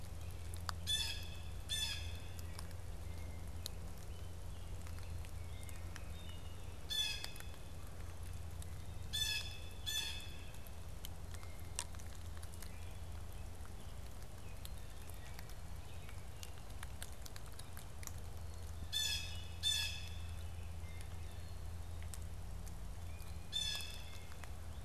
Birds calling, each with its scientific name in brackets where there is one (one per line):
Wood Thrush (Hylocichla mustelina)
Blue Jay (Cyanocitta cristata)